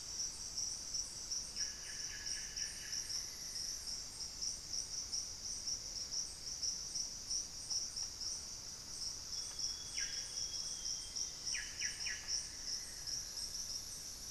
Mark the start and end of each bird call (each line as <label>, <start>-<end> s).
Solitary Black Cacique (Cacicus solitarius), 1.4-3.3 s
Amazonian Barred-Woodcreeper (Dendrocolaptes certhia), 2.7-3.8 s
Thrush-like Wren (Campylorhynchus turdinus), 7.5-12.6 s
Amazonian Grosbeak (Cyanoloxia rothschildii), 9.0-11.4 s
Solitary Black Cacique (Cacicus solitarius), 9.7-14.3 s
Amazonian Barred-Woodcreeper (Dendrocolaptes certhia), 10.4-13.8 s